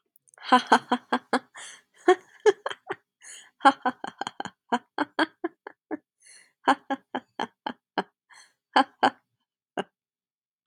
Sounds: Laughter